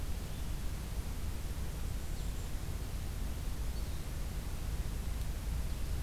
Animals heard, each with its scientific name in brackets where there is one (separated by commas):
Blue-headed Vireo (Vireo solitarius), Golden-crowned Kinglet (Regulus satrapa)